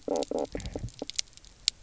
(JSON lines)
{"label": "biophony, knock croak", "recorder": "SoundTrap 300"}